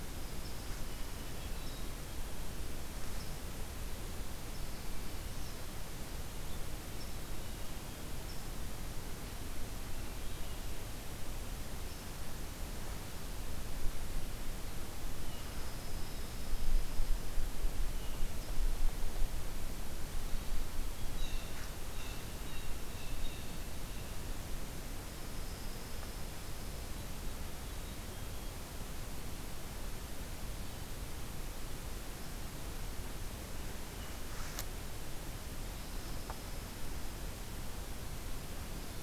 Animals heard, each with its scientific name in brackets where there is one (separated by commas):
Blue Jay (Cyanocitta cristata), Hermit Thrush (Catharus guttatus), Pine Warbler (Setophaga pinus)